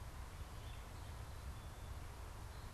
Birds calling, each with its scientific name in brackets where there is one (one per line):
Gray Catbird (Dumetella carolinensis)
Northern Cardinal (Cardinalis cardinalis)